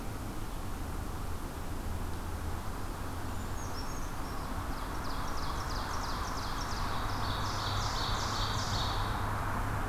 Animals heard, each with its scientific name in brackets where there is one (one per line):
Ovenbird (Seiurus aurocapilla)
Brown Creeper (Certhia americana)